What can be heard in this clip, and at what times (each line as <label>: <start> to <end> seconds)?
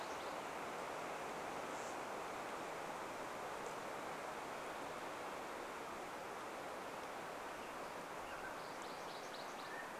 MacGillivray's Warbler song: 0 to 2 seconds
unidentified bird chip note: 0 to 4 seconds
American Robin song: 6 to 10 seconds
MacGillivray's Warbler song: 8 to 10 seconds
Mountain Quail call: 8 to 10 seconds